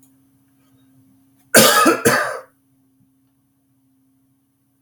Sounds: Cough